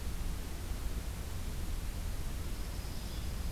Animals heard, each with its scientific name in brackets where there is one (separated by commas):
Dark-eyed Junco (Junco hyemalis), Blue-headed Vireo (Vireo solitarius)